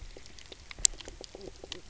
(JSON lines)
{"label": "biophony, knock croak", "recorder": "SoundTrap 300"}